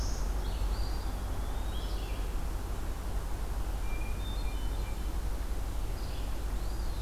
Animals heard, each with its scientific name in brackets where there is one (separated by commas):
Eastern Wood-Pewee (Contopus virens), Red-eyed Vireo (Vireo olivaceus), Hermit Thrush (Catharus guttatus)